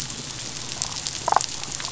{"label": "biophony, damselfish", "recorder": "SoundTrap 500"}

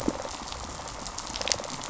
{"label": "biophony, rattle response", "recorder": "SoundTrap 500"}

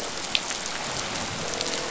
{"label": "biophony", "recorder": "SoundTrap 500"}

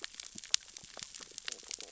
{"label": "biophony, stridulation", "recorder": "SoundTrap 600 or HydroMoth"}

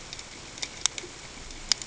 {"label": "ambient", "recorder": "HydroMoth"}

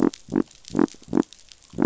{"label": "biophony", "recorder": "SoundTrap 500"}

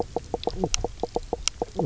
{"label": "biophony, knock croak", "recorder": "SoundTrap 300"}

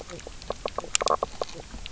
{"label": "biophony, knock croak", "recorder": "SoundTrap 300"}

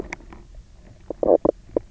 {"label": "biophony, knock croak", "recorder": "SoundTrap 300"}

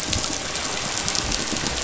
{"label": "anthrophony, boat engine", "recorder": "SoundTrap 500"}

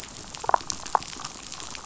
{"label": "biophony, damselfish", "recorder": "SoundTrap 500"}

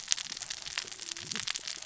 {"label": "biophony, cascading saw", "recorder": "SoundTrap 600 or HydroMoth"}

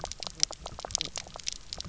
{"label": "biophony, knock croak", "recorder": "SoundTrap 300"}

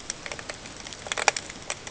{"label": "ambient", "recorder": "HydroMoth"}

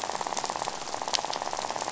{"label": "biophony, rattle", "recorder": "SoundTrap 500"}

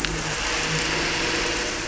{"label": "anthrophony, boat engine", "recorder": "SoundTrap 300"}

